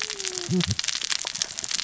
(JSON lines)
{"label": "biophony, cascading saw", "recorder": "SoundTrap 600 or HydroMoth"}